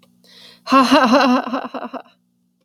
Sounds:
Laughter